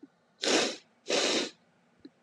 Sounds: Sniff